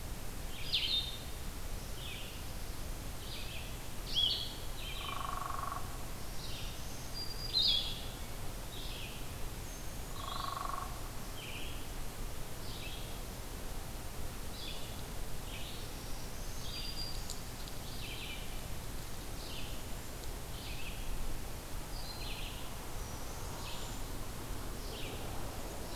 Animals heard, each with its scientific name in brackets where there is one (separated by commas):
Black-throated Green Warbler (Setophaga virens), unidentified call, Red-eyed Vireo (Vireo olivaceus), Broad-winged Hawk (Buteo platypterus), Hairy Woodpecker (Dryobates villosus), Blue-headed Vireo (Vireo solitarius)